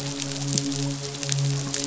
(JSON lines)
{"label": "biophony, midshipman", "recorder": "SoundTrap 500"}